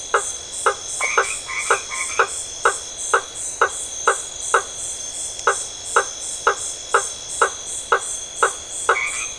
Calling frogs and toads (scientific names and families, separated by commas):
Boana faber (Hylidae), Boana albomarginata (Hylidae)